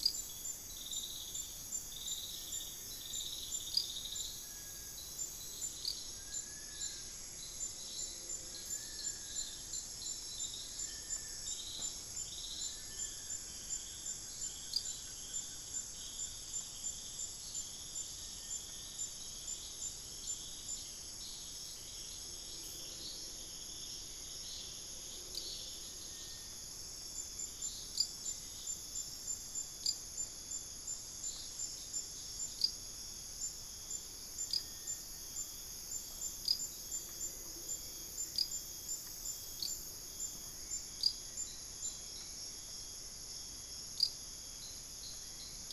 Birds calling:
Long-billed Woodcreeper (Nasica longirostris), Blue-crowned Trogon (Trogon curucui), Hauxwell's Thrush (Turdus hauxwelli)

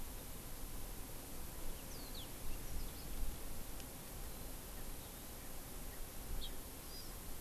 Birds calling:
Hawaii Amakihi (Chlorodrepanis virens), House Finch (Haemorhous mexicanus), Warbling White-eye (Zosterops japonicus)

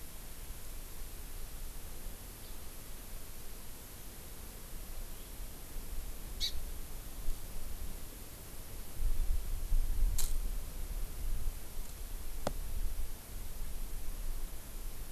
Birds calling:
Hawaii Amakihi (Chlorodrepanis virens), House Finch (Haemorhous mexicanus)

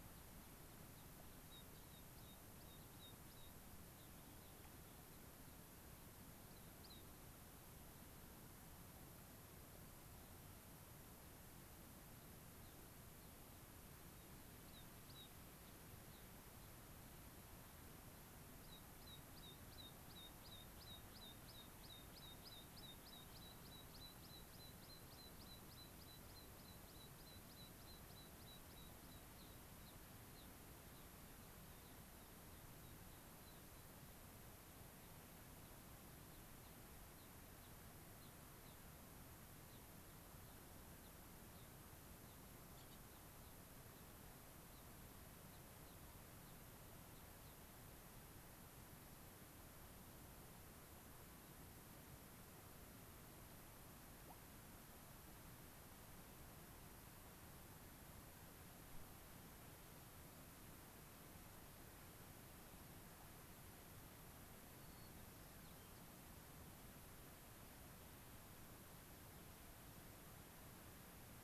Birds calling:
White-crowned Sparrow (Zonotrichia leucophrys), Gray-crowned Rosy-Finch (Leucosticte tephrocotis), American Pipit (Anthus rubescens)

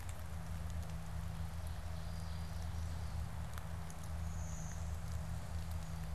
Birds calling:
Blue-winged Warbler (Vermivora cyanoptera), Brown-headed Cowbird (Molothrus ater)

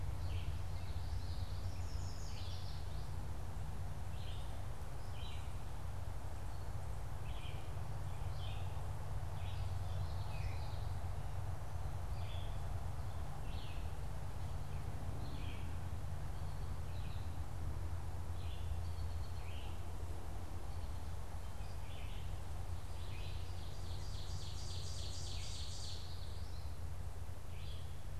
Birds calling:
Yellow Warbler (Setophaga petechia), Red-eyed Vireo (Vireo olivaceus), Common Yellowthroat (Geothlypis trichas), Ovenbird (Seiurus aurocapilla)

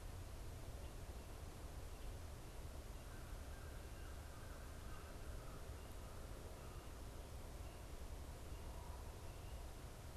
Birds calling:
American Crow (Corvus brachyrhynchos), Common Raven (Corvus corax)

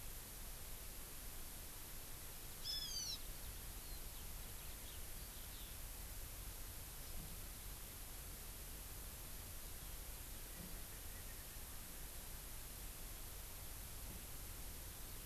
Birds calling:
Hawaiian Hawk (Buteo solitarius)

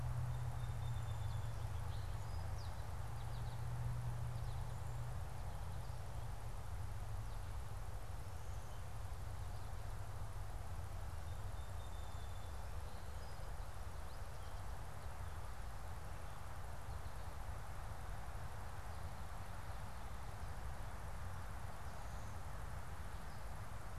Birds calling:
Song Sparrow (Melospiza melodia), American Goldfinch (Spinus tristis)

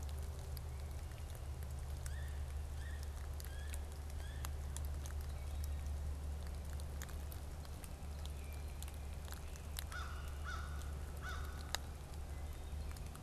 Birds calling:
Yellow-bellied Sapsucker (Sphyrapicus varius), American Crow (Corvus brachyrhynchos)

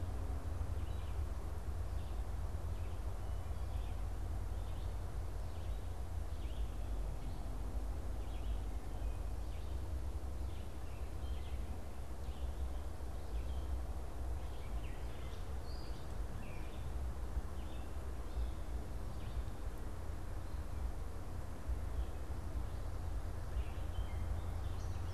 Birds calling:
Red-eyed Vireo (Vireo olivaceus), unidentified bird

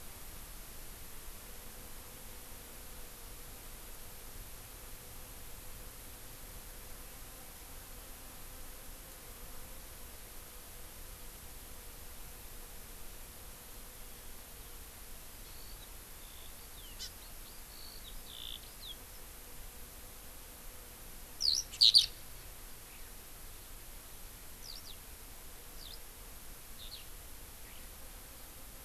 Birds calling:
Eurasian Skylark (Alauda arvensis), Hawaii Amakihi (Chlorodrepanis virens)

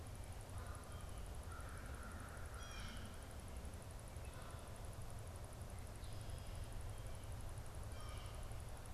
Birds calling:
American Crow (Corvus brachyrhynchos), Canada Goose (Branta canadensis), Blue Jay (Cyanocitta cristata)

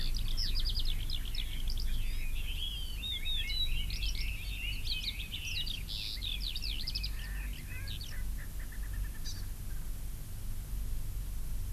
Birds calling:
Eurasian Skylark (Alauda arvensis), Hawaii Amakihi (Chlorodrepanis virens), Red-billed Leiothrix (Leiothrix lutea), Erckel's Francolin (Pternistis erckelii)

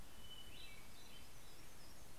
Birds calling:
Hermit Warbler (Setophaga occidentalis), Hermit Thrush (Catharus guttatus)

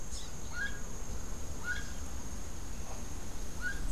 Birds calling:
Rufous-capped Warbler (Basileuterus rufifrons), Gray-headed Chachalaca (Ortalis cinereiceps)

